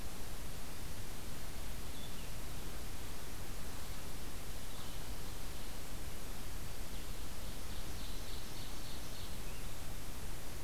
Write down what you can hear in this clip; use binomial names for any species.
Seiurus aurocapilla